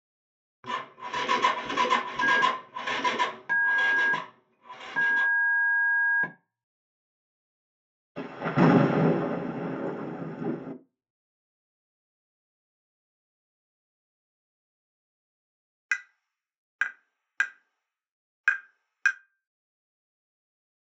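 At 0.63 seconds, you can hear the sound of an engine. Over it, at 2.2 seconds, the sound of a telephone is audible. Then at 8.15 seconds there is thunder. After that, at 15.88 seconds, tapping is heard.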